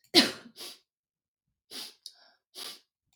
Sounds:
Sneeze